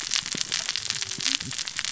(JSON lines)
{"label": "biophony, cascading saw", "recorder": "SoundTrap 600 or HydroMoth"}